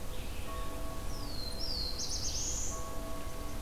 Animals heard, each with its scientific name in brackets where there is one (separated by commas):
Red-eyed Vireo (Vireo olivaceus), Black-throated Blue Warbler (Setophaga caerulescens)